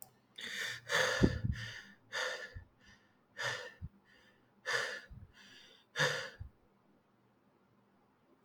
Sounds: Sigh